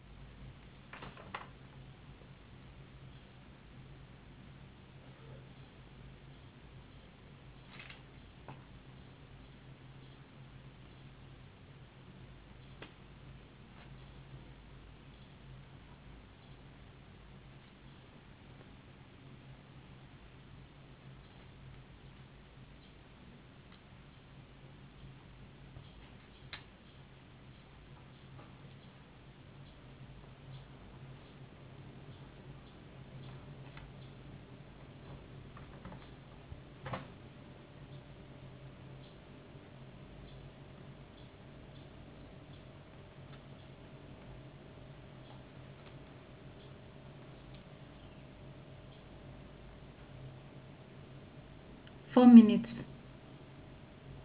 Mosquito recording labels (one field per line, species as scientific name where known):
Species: no mosquito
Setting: insect culture